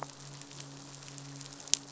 {"label": "biophony, midshipman", "recorder": "SoundTrap 500"}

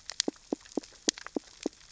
{"label": "biophony, knock", "recorder": "SoundTrap 600 or HydroMoth"}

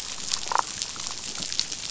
{"label": "biophony, damselfish", "recorder": "SoundTrap 500"}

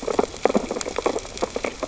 {"label": "biophony, sea urchins (Echinidae)", "recorder": "SoundTrap 600 or HydroMoth"}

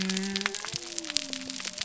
{"label": "biophony", "recorder": "SoundTrap 300"}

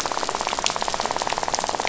{"label": "biophony, rattle", "recorder": "SoundTrap 500"}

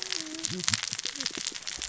{"label": "biophony, cascading saw", "recorder": "SoundTrap 600 or HydroMoth"}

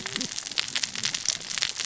{"label": "biophony, cascading saw", "recorder": "SoundTrap 600 or HydroMoth"}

